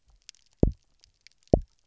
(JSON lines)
{"label": "biophony, double pulse", "recorder": "SoundTrap 300"}